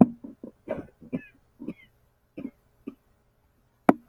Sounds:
Cough